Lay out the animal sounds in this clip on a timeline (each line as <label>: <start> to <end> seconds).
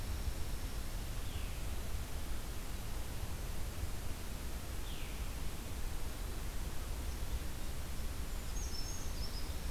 Veery (Catharus fuscescens): 1.1 to 1.5 seconds
Veery (Catharus fuscescens): 4.8 to 5.1 seconds
Brown Creeper (Certhia americana): 7.9 to 9.7 seconds